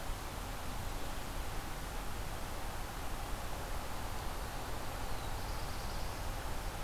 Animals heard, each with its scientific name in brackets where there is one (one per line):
Black-throated Blue Warbler (Setophaga caerulescens)